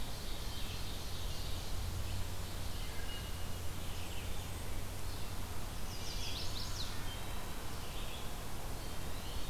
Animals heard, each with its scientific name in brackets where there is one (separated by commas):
Ovenbird (Seiurus aurocapilla), Red-eyed Vireo (Vireo olivaceus), Wood Thrush (Hylocichla mustelina), Eastern Wood-Pewee (Contopus virens), Chestnut-sided Warbler (Setophaga pensylvanica), Blackburnian Warbler (Setophaga fusca)